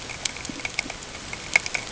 {"label": "ambient", "recorder": "HydroMoth"}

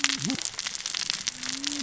{"label": "biophony, cascading saw", "recorder": "SoundTrap 600 or HydroMoth"}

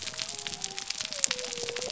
{"label": "biophony", "recorder": "SoundTrap 300"}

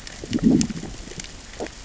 {"label": "biophony, growl", "recorder": "SoundTrap 600 or HydroMoth"}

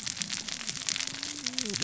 {"label": "biophony, cascading saw", "recorder": "SoundTrap 600 or HydroMoth"}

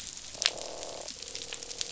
{"label": "biophony, croak", "recorder": "SoundTrap 500"}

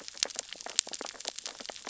{"label": "biophony, sea urchins (Echinidae)", "recorder": "SoundTrap 600 or HydroMoth"}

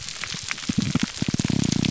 {"label": "biophony", "recorder": "SoundTrap 300"}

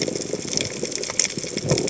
{"label": "biophony", "recorder": "HydroMoth"}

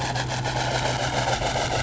{"label": "anthrophony, boat engine", "recorder": "SoundTrap 500"}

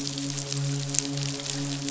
{"label": "biophony, midshipman", "recorder": "SoundTrap 500"}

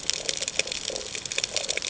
{"label": "ambient", "recorder": "HydroMoth"}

